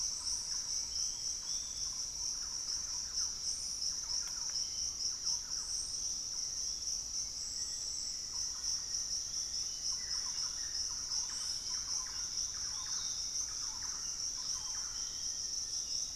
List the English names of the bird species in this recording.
Gray Antwren, Piratic Flycatcher, Thrush-like Wren, Black-faced Antthrush, Bluish-fronted Jacamar, Buff-throated Woodcreeper, unidentified bird